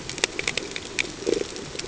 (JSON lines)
{"label": "ambient", "recorder": "HydroMoth"}